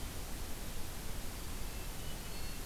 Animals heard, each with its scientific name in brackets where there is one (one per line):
Hermit Thrush (Catharus guttatus)